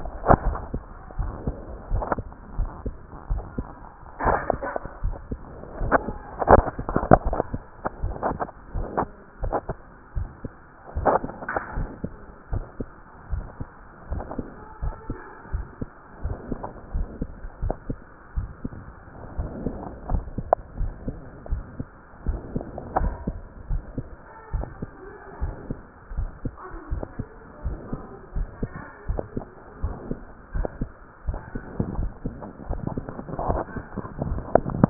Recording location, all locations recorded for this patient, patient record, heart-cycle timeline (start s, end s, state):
tricuspid valve (TV)
aortic valve (AV)+pulmonary valve (PV)+tricuspid valve (TV)+mitral valve (MV)
#Age: Child
#Sex: Male
#Height: 129.0 cm
#Weight: 23.5 kg
#Pregnancy status: False
#Murmur: Absent
#Murmur locations: nan
#Most audible location: nan
#Systolic murmur timing: nan
#Systolic murmur shape: nan
#Systolic murmur grading: nan
#Systolic murmur pitch: nan
#Systolic murmur quality: nan
#Diastolic murmur timing: nan
#Diastolic murmur shape: nan
#Diastolic murmur grading: nan
#Diastolic murmur pitch: nan
#Diastolic murmur quality: nan
#Outcome: Abnormal
#Campaign: 2015 screening campaign
0.00	12.15	unannotated
12.15	12.48	diastole
12.48	12.64	S1
12.64	12.76	systole
12.76	12.88	S2
12.88	13.28	diastole
13.28	13.46	S1
13.46	13.58	systole
13.58	13.68	S2
13.68	14.10	diastole
14.10	14.24	S1
14.24	14.38	systole
14.38	14.46	S2
14.46	14.80	diastole
14.80	14.94	S1
14.94	15.08	systole
15.08	15.16	S2
15.16	15.50	diastole
15.50	15.66	S1
15.66	15.80	systole
15.80	15.88	S2
15.88	16.22	diastole
16.22	16.36	S1
16.36	16.50	systole
16.50	16.60	S2
16.60	16.92	diastole
16.92	17.08	S1
17.08	17.20	systole
17.20	17.30	S2
17.30	17.62	diastole
17.62	17.78	S1
17.78	17.88	systole
17.88	17.98	S2
17.98	18.34	diastole
18.34	18.49	S1
18.49	18.63	systole
18.63	18.75	S2
18.75	19.36	diastole
19.36	19.52	S1
19.52	19.64	systole
19.64	19.74	S2
19.74	20.08	diastole
20.08	20.24	S1
20.24	20.36	systole
20.36	20.46	S2
20.46	20.78	diastole
20.78	20.94	S1
20.94	21.04	systole
21.04	21.16	S2
21.16	21.48	diastole
21.48	21.64	S1
21.64	21.78	systole
21.78	21.88	S2
21.88	22.24	diastole
22.24	22.40	S1
22.40	22.54	systole
22.54	22.64	S2
22.64	23.00	diastole
23.00	23.18	S1
23.18	23.26	systole
23.26	23.36	S2
23.36	23.68	diastole
23.68	23.82	S1
23.82	23.96	systole
23.96	24.06	S2
24.06	24.50	diastole
24.50	24.68	S1
24.68	24.80	systole
24.80	24.92	S2
24.92	25.40	diastole
25.40	25.56	S1
25.56	25.68	systole
25.68	25.80	S2
25.80	26.14	diastole
26.14	26.31	S1
26.31	26.43	systole
26.43	26.54	S2
26.54	26.90	diastole
26.90	27.04	S1
27.04	27.16	systole
27.16	27.26	S2
27.26	27.64	diastole
27.64	27.78	S1
27.78	27.88	systole
27.88	28.00	S2
28.00	28.34	diastole
28.34	28.48	S1
28.48	28.60	systole
28.60	28.70	S2
28.70	29.06	diastole
29.06	29.20	S1
29.20	29.32	systole
29.32	29.46	S2
29.46	29.82	diastole
29.82	29.96	S1
29.96	30.08	systole
30.08	30.18	S2
30.18	30.52	diastole
30.52	30.66	S1
30.66	30.76	systole
30.76	30.88	S2
30.88	31.18	diastole
31.18	34.90	unannotated